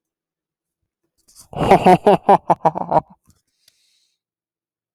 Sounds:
Laughter